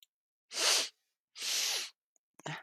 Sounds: Sniff